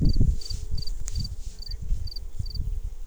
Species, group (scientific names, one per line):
Gryllus campestris
Orthoptera